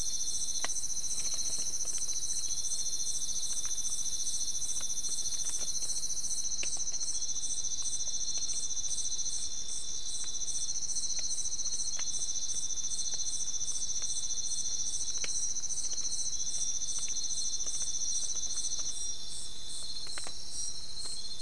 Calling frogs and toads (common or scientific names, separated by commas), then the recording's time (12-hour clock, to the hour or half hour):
none
3:30am